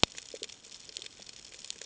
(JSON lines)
{"label": "ambient", "recorder": "HydroMoth"}